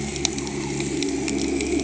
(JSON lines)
{"label": "anthrophony, boat engine", "recorder": "HydroMoth"}